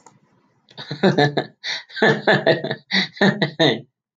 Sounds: Laughter